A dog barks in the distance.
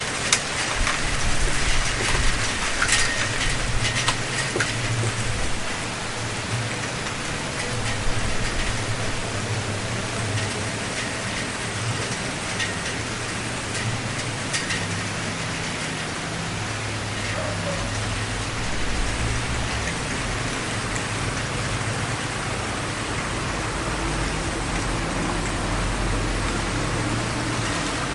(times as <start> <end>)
17.3 17.9